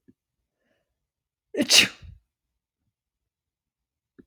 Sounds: Sneeze